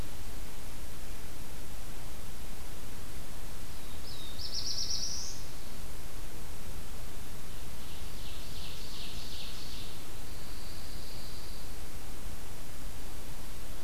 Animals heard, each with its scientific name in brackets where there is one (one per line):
Black-throated Blue Warbler (Setophaga caerulescens)
Pine Warbler (Setophaga pinus)
Ovenbird (Seiurus aurocapilla)